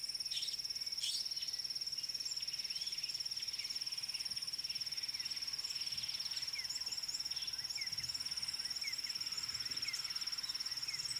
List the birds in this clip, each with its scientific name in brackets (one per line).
Meyer's Parrot (Poicephalus meyeri)
D'Arnaud's Barbet (Trachyphonus darnaudii)
Red-cheeked Cordonbleu (Uraeginthus bengalus)